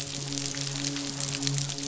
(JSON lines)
{"label": "biophony, midshipman", "recorder": "SoundTrap 500"}